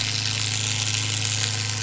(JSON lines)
{"label": "anthrophony, boat engine", "recorder": "SoundTrap 500"}